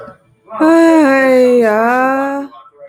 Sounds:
Sigh